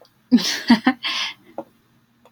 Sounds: Laughter